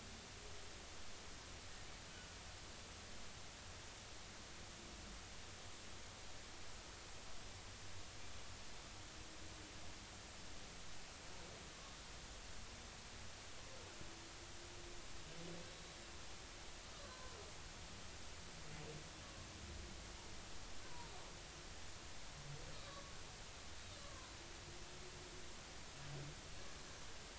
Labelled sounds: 15.7	15.9	humpback whale, 3.8 to 4.0 kHz
17.1	17.3	humpback whale, 0.96 to 1.6 kHz
20.8	21.1	humpback whale, 0.90 to 1.1 kHz
22.8	23.2	humpback whale, 1.1 to 1.3 kHz
24.0	24.3	humpback whale, 0.96 to 1.2 kHz

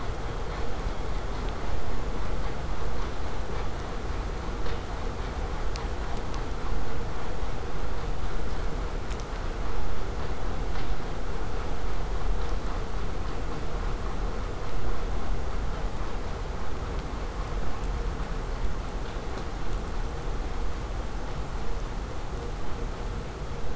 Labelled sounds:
16.6	21.6	vessel noise, 0 to 8.0 kHz

